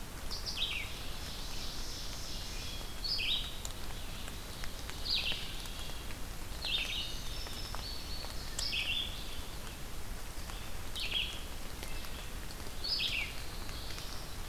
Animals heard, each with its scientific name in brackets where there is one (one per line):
Wood Thrush (Hylocichla mustelina)
Indigo Bunting (Passerina cyanea)
Ovenbird (Seiurus aurocapilla)
Black-throated Blue Warbler (Setophaga caerulescens)
Red-eyed Vireo (Vireo olivaceus)